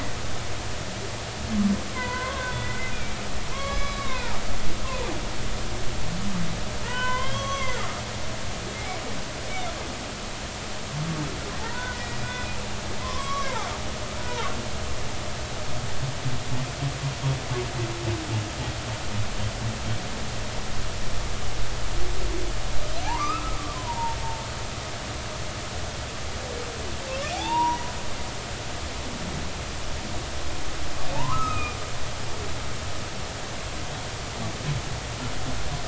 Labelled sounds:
1.9	3.2	humpback whale, 0.93 to 2.5 kHz
3.5	4.4	humpback whale, 0.80 to 5.1 kHz
6.8	7.8	humpback whale, 0.90 to 6.1 kHz
11.7	12.6	humpback whale, 0.93 to 2.5 kHz
13.0	13.7	humpback whale, 0.80 to 6.2 kHz
23.0	24.2	humpback whale, 0.80 to 2.7 kHz
27.3	27.9	humpback whale, 0.80 to 5.9 kHz
31.1	31.8	humpback whale, 0.83 to 5.2 kHz

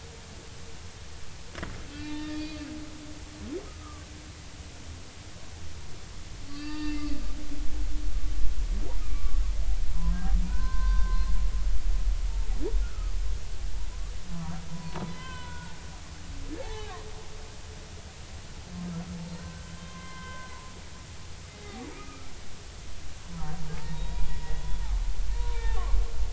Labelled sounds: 1.9	2.6	humpback whale, 0.83 to 4.7 kHz
3.8	4.1	humpback whale, 1.1 to 1.3 kHz
6.5	7.0	humpback whale, 0.86 to 4.9 kHz
9.0	9.4	humpback whale, 1.1 to 1.3 kHz
9.9	11.3	humpback whale, 0.93 to 1.7 kHz
12.8	13.1	humpback whale, 1.2 to 1.5 kHz
14.7	15.8	humpback whale, 0.80 to 4.2 kHz
16.6	17.0	humpback whale, 0.80 to 4.0 kHz
19.4	20.5	humpback whale, 0.96 to 2.1 kHz
21.9	22.3	humpback whale, 1.2 to 1.4 kHz
23.3	24.8	humpback whale, 0.80 to 3.9 kHz
25.4	25.8	humpback whale, 0.80 to 3.8 kHz

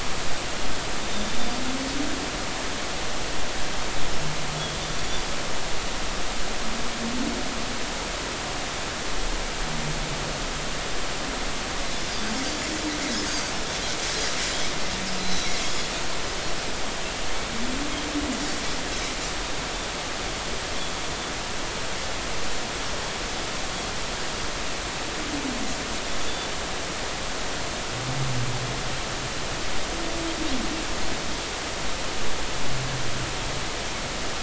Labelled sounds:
13.3	13.5	Pacific white-sided dolphin, 4.5 to 4.9 kHz
15.2	15.9	Pacific white-sided dolphin, 3.1 to 4.1 kHz

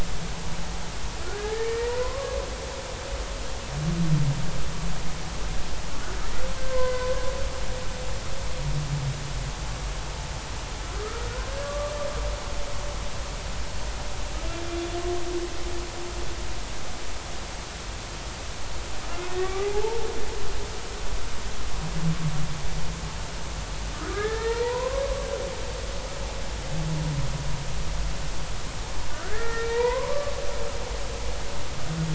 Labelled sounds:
1.2	2.3	humpback whale, 0.96 to 2.4 kHz
6.7	7.1	humpback whale, 0.96 to 1.6 kHz
11.4	11.9	humpback whale, 1.1 to 1.7 kHz
14.7	15.0	humpback whale, 3.4 to 3.5 kHz
19.3	20.1	humpback whale, 0.80 to 2.0 kHz
23.9	25.0	humpback whale, 0.83 to 2.0 kHz
29.2	30.4	humpback whale, 0.86 to 2.6 kHz

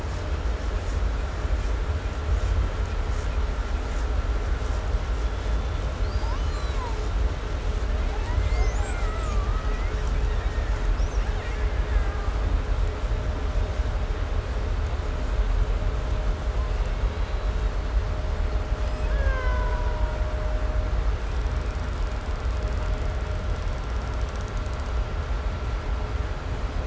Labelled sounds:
5.1	7.2	killer whale, 0.51 to 8.0 kHz
7.6	12.7	killer whale, 0.50 to 8.0 kHz
16.2	18.1	killer whale, 0.78 to 4.2 kHz
18.6	20.6	killer whale, Bigg's (transient), call T08, 0.61 to 8.0 kHz
21.4	25.1	killer whale, 2.9 to 8.0 kHz

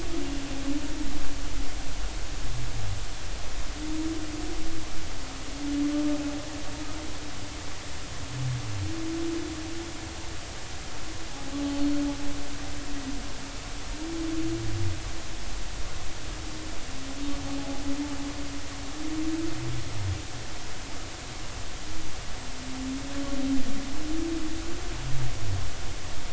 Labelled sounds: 11.7	12.0	humpback whale, 4.3 to 4.4 kHz

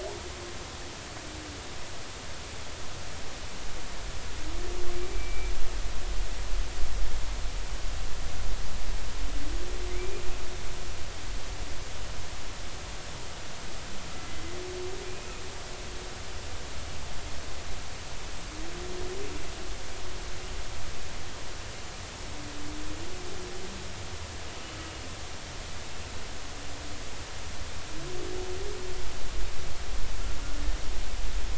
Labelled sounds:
4.9	5.5	humpback whale, 2.3 to 2.5 kHz
9.9	10.2	humpback whale, 2.0 to 2.5 kHz

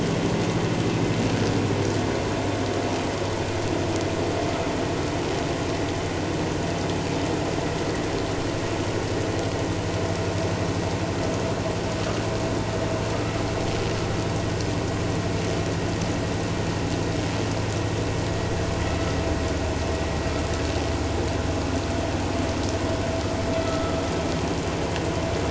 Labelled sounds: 23.6	24.0	vessel noise, 1.2 to 1.4 kHz

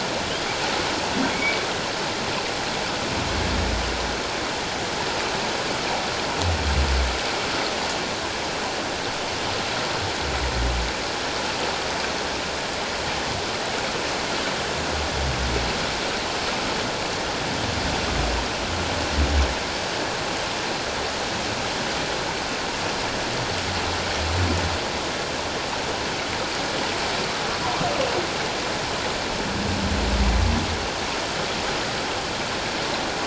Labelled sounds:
1.3	1.6	humpback whale, 2.1 to 2.4 kHz

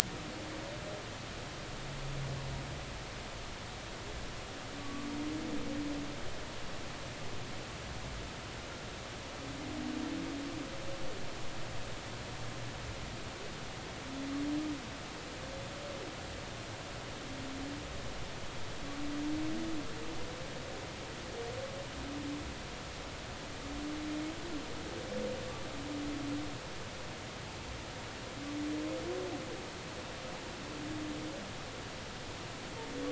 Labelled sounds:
4.8	5.1	humpback whale, 1.0 to 1.2 kHz

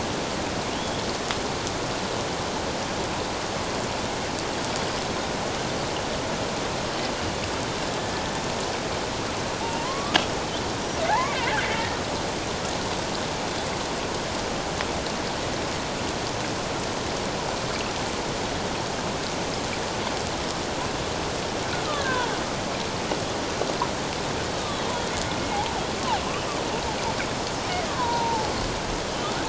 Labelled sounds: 0.7	1.0	killer whale, Bigg's (transient), 2.8 to 3.5 kHz
9.6	10.2	killer whale, Bigg's (transient), 0.81 to 1.3 kHz
11.1	11.5	killer whale, Bigg's (transient), 0.78 to 2.4 kHz
21.9	22.3	killer whale, Bigg's (transient), 0.84 to 1.8 kHz
27.9	28.5	killer whale, Bigg's (transient), 0.81 to 4.2 kHz

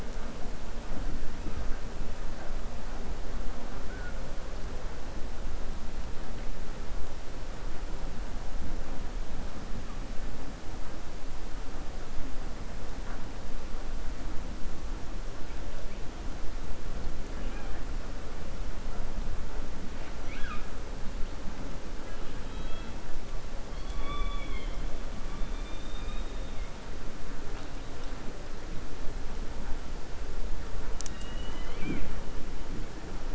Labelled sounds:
22.4	22.9	killer whale, 1.3 to 4.0 kHz
23.7	24.8	killer whale, 0.60 to 4.5 kHz
25.4	26.7	killer whale, 2.1 to 3.8 kHz

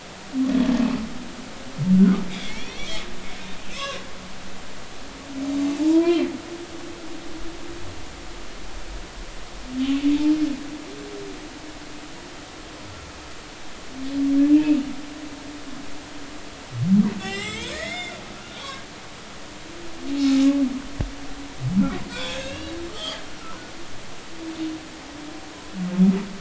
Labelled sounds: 1.9	3.0	humpback whale, 1.1 to 4.1 kHz
3.7	4.0	humpback whale, 0.99 to 2.8 kHz
5.8	6.3	humpback whale, 0.83 to 2.5 kHz
14.5	14.8	humpback whale, 2.4 to 2.8 kHz
17.2	18.6	humpback whale, 1.2 to 7.9 kHz
22.1	23.2	humpback whale, 1.1 to 3.7 kHz

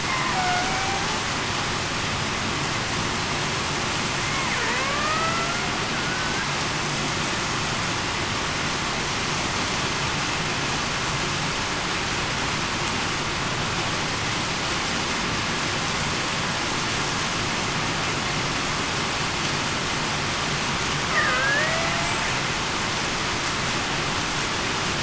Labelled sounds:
0.3	1.0	killer whale, Bigg's (transient), 0.68 to 1.5 kHz
4.6	5.0	killer whale, Bigg's (transient), 0.45 to 0.58 kHz
6.0	6.4	killer whale, Bigg's (transient), 1.4 to 1.6 kHz
21.1	21.5	killer whale, Bigg's (transient), 1.2 to 1.3 kHz

